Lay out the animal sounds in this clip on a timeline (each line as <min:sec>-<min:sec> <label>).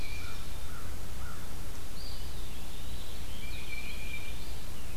0:00.0-0:02.0 American Crow (Corvus brachyrhynchos)
0:01.8-0:03.4 Eastern Wood-Pewee (Contopus virens)
0:03.3-0:04.6 Tufted Titmouse (Baeolophus bicolor)